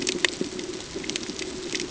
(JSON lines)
{"label": "ambient", "recorder": "HydroMoth"}